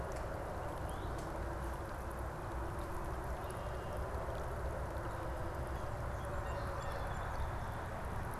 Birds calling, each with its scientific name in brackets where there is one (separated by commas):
Song Sparrow (Melospiza melodia), Red-winged Blackbird (Agelaius phoeniceus), Blue Jay (Cyanocitta cristata)